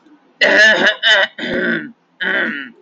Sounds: Throat clearing